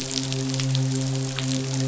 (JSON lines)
{"label": "biophony, midshipman", "recorder": "SoundTrap 500"}